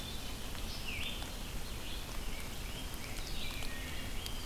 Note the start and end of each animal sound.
[0.00, 4.45] Red-eyed Vireo (Vireo olivaceus)
[1.97, 3.51] Dark-eyed Junco (Junco hyemalis)
[3.51, 4.25] Wood Thrush (Hylocichla mustelina)

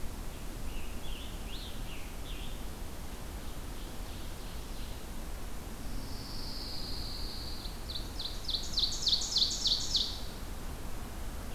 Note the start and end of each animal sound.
[0.00, 3.30] Scarlet Tanager (Piranga olivacea)
[3.00, 4.97] Ovenbird (Seiurus aurocapilla)
[5.88, 7.77] Pine Warbler (Setophaga pinus)
[7.68, 10.34] Ovenbird (Seiurus aurocapilla)

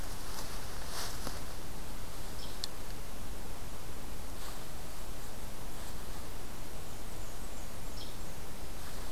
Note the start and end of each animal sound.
[6.90, 8.44] Blackburnian Warbler (Setophaga fusca)
[7.88, 8.22] Hairy Woodpecker (Dryobates villosus)

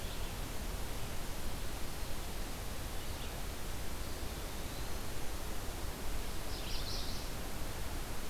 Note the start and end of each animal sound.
[3.84, 5.10] Eastern Wood-Pewee (Contopus virens)
[6.36, 7.35] Chestnut-sided Warbler (Setophaga pensylvanica)

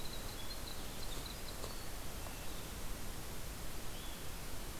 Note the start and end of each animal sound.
[0.00, 2.05] Winter Wren (Troglodytes hiemalis)
[3.86, 4.21] Eastern Wood-Pewee (Contopus virens)

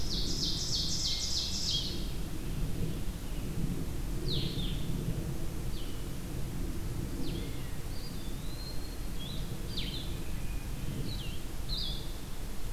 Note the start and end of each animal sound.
[0.00, 2.27] Ovenbird (Seiurus aurocapilla)
[0.00, 12.72] Blue-headed Vireo (Vireo solitarius)
[0.94, 2.21] Hermit Thrush (Catharus guttatus)
[7.76, 9.02] Eastern Wood-Pewee (Contopus virens)
[8.53, 10.42] Ovenbird (Seiurus aurocapilla)

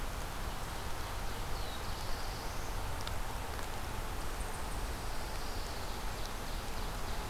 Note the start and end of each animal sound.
[0.93, 2.90] Black-throated Blue Warbler (Setophaga caerulescens)
[3.98, 5.25] Eastern Chipmunk (Tamias striatus)
[4.68, 6.07] Pine Warbler (Setophaga pinus)
[5.57, 7.30] Ovenbird (Seiurus aurocapilla)

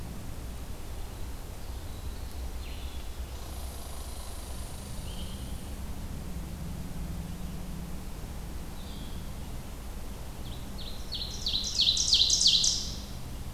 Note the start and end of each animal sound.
[0.00, 13.53] Blue-headed Vireo (Vireo solitarius)
[3.32, 5.98] Red Squirrel (Tamiasciurus hudsonicus)
[10.14, 13.06] Ovenbird (Seiurus aurocapilla)

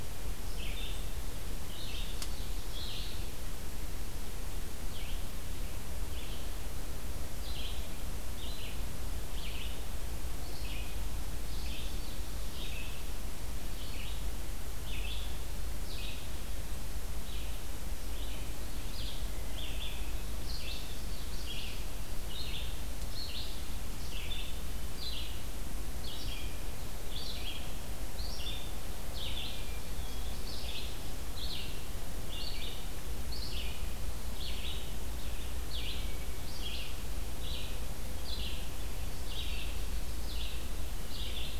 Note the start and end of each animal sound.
[0.00, 41.60] Red-eyed Vireo (Vireo olivaceus)
[29.35, 30.80] Hermit Thrush (Catharus guttatus)

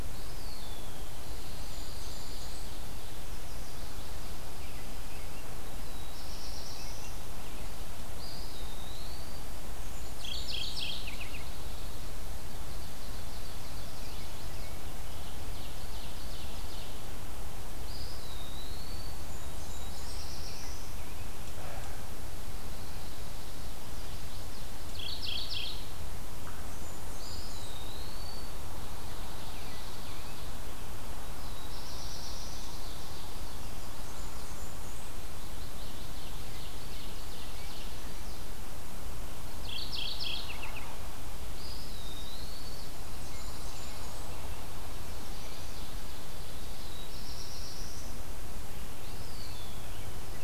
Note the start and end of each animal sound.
[0.00, 1.16] Eastern Wood-Pewee (Contopus virens)
[1.12, 2.80] Pine Warbler (Setophaga pinus)
[1.15, 2.75] Blackburnian Warbler (Setophaga fusca)
[3.19, 4.42] Chestnut-sided Warbler (Setophaga pensylvanica)
[4.48, 5.47] American Robin (Turdus migratorius)
[5.69, 7.30] Black-throated Blue Warbler (Setophaga caerulescens)
[8.10, 9.51] Eastern Wood-Pewee (Contopus virens)
[9.63, 11.09] Blackburnian Warbler (Setophaga fusca)
[10.12, 11.55] Mourning Warbler (Geothlypis philadelphia)
[10.87, 12.18] Pine Warbler (Setophaga pinus)
[12.29, 14.04] Ovenbird (Seiurus aurocapilla)
[13.55, 14.75] Chestnut-sided Warbler (Setophaga pensylvanica)
[14.96, 17.05] Ovenbird (Seiurus aurocapilla)
[17.75, 19.33] Eastern Wood-Pewee (Contopus virens)
[19.12, 20.25] Blackburnian Warbler (Setophaga fusca)
[19.32, 21.00] Black-throated Blue Warbler (Setophaga caerulescens)
[23.60, 24.68] Chestnut-sided Warbler (Setophaga pensylvanica)
[24.79, 25.88] Mourning Warbler (Geothlypis philadelphia)
[26.41, 27.82] Blackburnian Warbler (Setophaga fusca)
[27.05, 28.57] Eastern Wood-Pewee (Contopus virens)
[28.70, 30.55] Ovenbird (Seiurus aurocapilla)
[31.05, 32.78] Black-throated Blue Warbler (Setophaga caerulescens)
[31.82, 33.59] Ovenbird (Seiurus aurocapilla)
[33.56, 34.55] Chestnut-sided Warbler (Setophaga pensylvanica)
[33.63, 35.16] Blackburnian Warbler (Setophaga fusca)
[35.52, 37.97] Ovenbird (Seiurus aurocapilla)
[37.49, 38.49] Chestnut-sided Warbler (Setophaga pensylvanica)
[39.54, 41.09] Mourning Warbler (Geothlypis philadelphia)
[41.41, 42.95] Eastern Wood-Pewee (Contopus virens)
[41.89, 42.93] Chestnut-sided Warbler (Setophaga pensylvanica)
[43.06, 44.50] Blackburnian Warbler (Setophaga fusca)
[43.11, 44.29] Pine Warbler (Setophaga pinus)
[44.99, 45.88] Chestnut-sided Warbler (Setophaga pensylvanica)
[45.63, 47.00] Ovenbird (Seiurus aurocapilla)
[46.50, 48.23] Black-throated Blue Warbler (Setophaga caerulescens)
[48.91, 50.11] Eastern Wood-Pewee (Contopus virens)

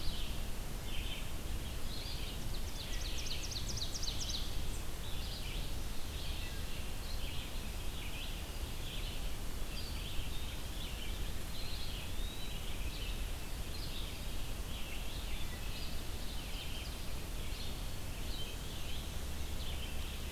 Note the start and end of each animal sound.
[0.00, 20.31] Red-eyed Vireo (Vireo olivaceus)
[2.35, 4.54] Ovenbird (Seiurus aurocapilla)
[6.11, 7.00] Wood Thrush (Hylocichla mustelina)
[8.31, 9.66] Eastern Wood-Pewee (Contopus virens)
[11.47, 12.72] Eastern Wood-Pewee (Contopus virens)
[15.13, 15.94] Wood Thrush (Hylocichla mustelina)
[16.84, 18.21] Eastern Wood-Pewee (Contopus virens)

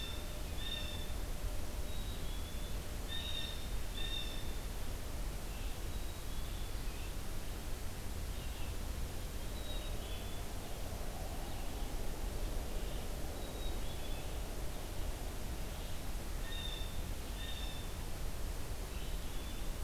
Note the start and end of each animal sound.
[0.00, 1.14] Blue Jay (Cyanocitta cristata)
[0.00, 19.83] Blue-headed Vireo (Vireo solitarius)
[1.81, 2.74] Black-capped Chickadee (Poecile atricapillus)
[2.96, 4.58] Blue Jay (Cyanocitta cristata)
[5.84, 6.84] Black-capped Chickadee (Poecile atricapillus)
[9.44, 10.55] Black-capped Chickadee (Poecile atricapillus)
[13.35, 14.33] Black-capped Chickadee (Poecile atricapillus)
[16.30, 18.02] Blue Jay (Cyanocitta cristata)
[18.75, 19.80] Black-capped Chickadee (Poecile atricapillus)

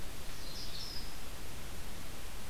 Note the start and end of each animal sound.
[0.26, 1.14] Canada Warbler (Cardellina canadensis)

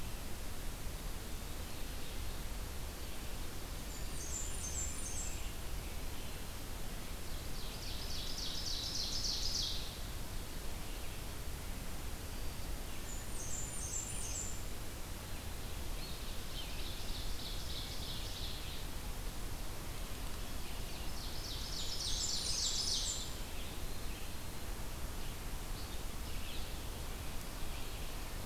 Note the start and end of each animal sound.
[3.73, 5.60] Blackburnian Warbler (Setophaga fusca)
[7.13, 9.93] Ovenbird (Seiurus aurocapilla)
[12.83, 14.79] Blackburnian Warbler (Setophaga fusca)
[16.01, 18.77] Ovenbird (Seiurus aurocapilla)
[20.68, 23.46] Ovenbird (Seiurus aurocapilla)
[21.54, 23.33] Blackburnian Warbler (Setophaga fusca)

